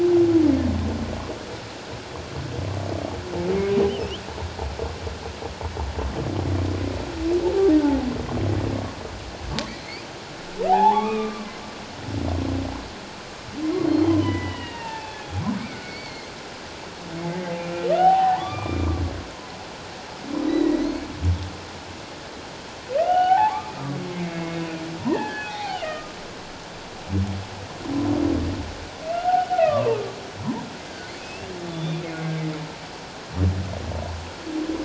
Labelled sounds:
3.9	4.1	humpback whale, 2.5 to 3.2 kHz
10.7	11.5	humpback whale, 0.78 to 2.6 kHz
13.7	16.3	humpback whale, 0.81 to 6.1 kHz
18.0	18.9	humpback whale, 0.78 to 3.1 kHz
20.4	21.0	humpback whale, 1.8 to 4.6 kHz
23.0	23.7	humpback whale, 0.78 to 3.1 kHz
24.3	24.6	humpback whale, 2.1 to 2.2 kHz
25.0	26.1	humpback whale, 0.78 to 1.9 kHz
29.1	30.0	humpback whale, 0.84 to 1.6 kHz
31.2	32.4	humpback whale, 1.6 to 3.7 kHz

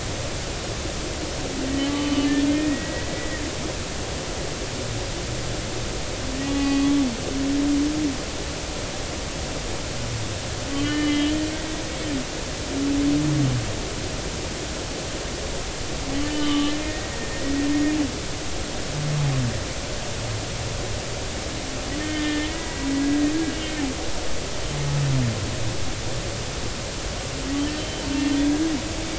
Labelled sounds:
2.5	3.4	humpback whale, 1.8 to 2.0 kHz
6.5	6.9	humpback whale, 0.80 to 2.6 kHz
10.7	11.8	humpback whale, 1.1 to 3.0 kHz
16.3	17.1	humpback whale, 1.1 to 3.1 kHz
22.0	23.8	humpback whale, 1.8 to 2.2 kHz
27.8	28.0	humpback whale, 3.0 to 3.1 kHz

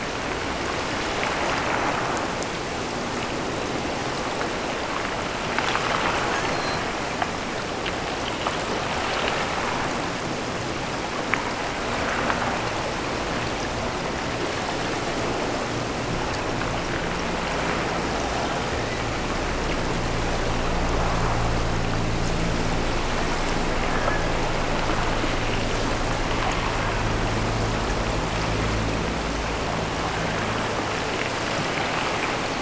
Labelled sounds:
6.4	6.9	killer whale, offshore, 3.9 to 6.4 kHz
23.9	24.4	killer whale, offshore, 0.93 to 1.9 kHz
26.3	26.9	killer whale, offshore, 0.55 to 1.3 kHz

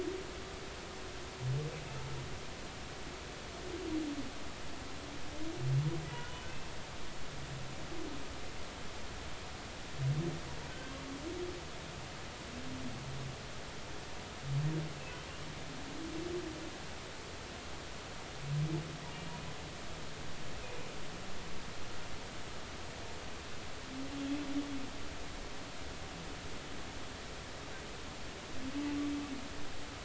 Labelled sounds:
6.1	6.5	humpback whale, 2.8 to 3.0 kHz
10.7	10.9	humpback whale, 1.4 to 1.6 kHz

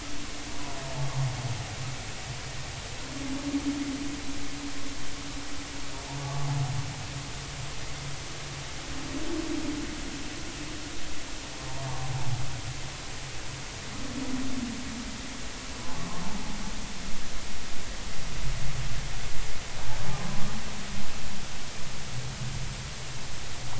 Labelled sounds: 6.2	6.5	humpback whale, 1.0 to 1.2 kHz

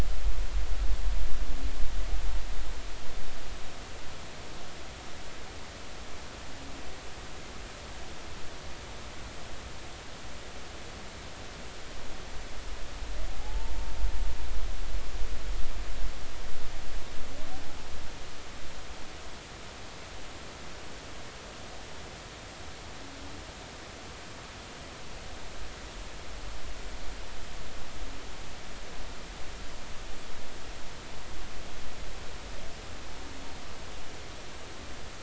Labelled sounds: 13.4	13.7	humpback whale, 0.80 to 0.96 kHz

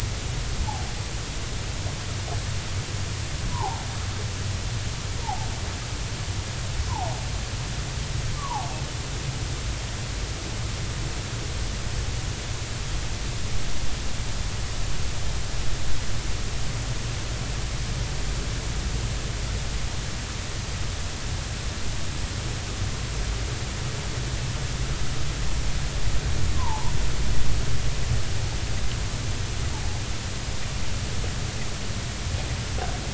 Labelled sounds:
3.5	3.8	vessel noise, 0.80 to 1.1 kHz

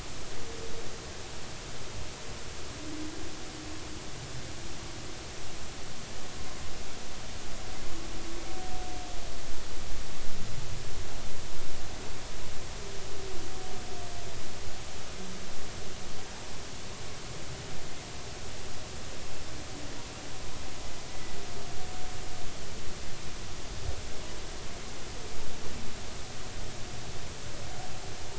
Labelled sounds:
21.1	21.4	humpback whale, 1.9 to 2.0 kHz

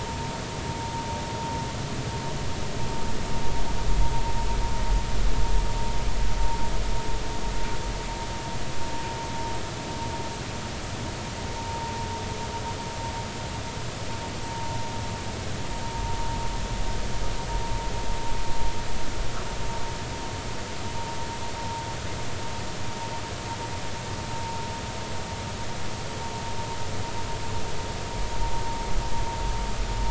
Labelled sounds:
11.7	11.9	vessel noise, 0.90 to 1.0 kHz

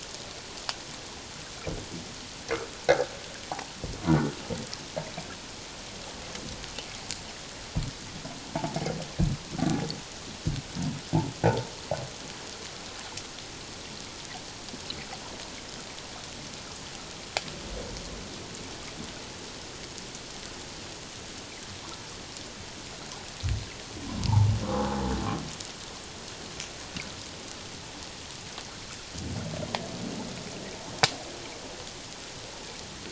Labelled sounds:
2.9	3.1	humpback whale, 1.5 to 1.8 kHz
9.5	9.8	humpback whale, 1.3 to 1.6 kHz
24.2	25.1	humpback whale, 0.78 to 1.1 kHz

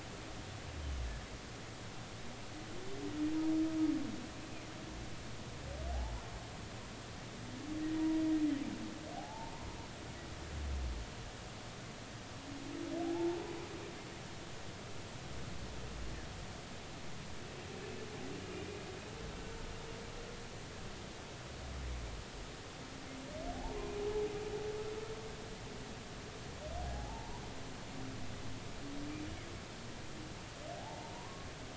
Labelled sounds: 7.9	8.2	humpback whale, 0.90 to 0.99 kHz
9.1	9.5	humpback whale, 0.80 to 0.96 kHz
13.0	13.4	humpback whale, 0.80 to 0.96 kHz
26.9	27.4	humpback whale, 0.80 to 1.1 kHz
30.8	31.5	humpback whale, 0.80 to 1.2 kHz

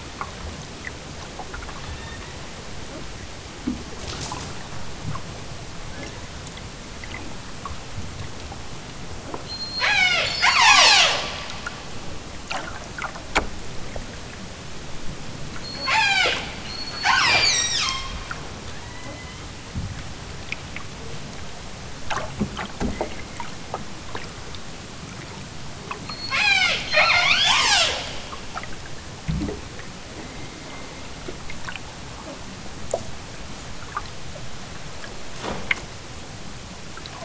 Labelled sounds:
1.7	2.4	killer whale, southern Alaska resident, 1.2 to 4.2 kHz
9.4	11.2	killer whale, southern Alaska resident, 0.14 to 8.0 kHz
15.7	18.2	killer whale, southern Alaska resident, 0.18 to 8.0 kHz
18.7	19.6	killer whale, southern Alaska resident, 0.50 to 4.4 kHz
26.1	28.1	killer whale, southern Alaska resident, 0.18 to 8.0 kHz

